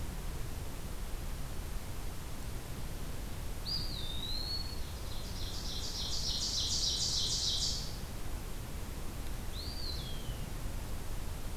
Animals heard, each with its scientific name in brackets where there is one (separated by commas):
Ovenbird (Seiurus aurocapilla), Eastern Wood-Pewee (Contopus virens)